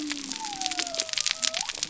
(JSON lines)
{"label": "biophony", "recorder": "SoundTrap 300"}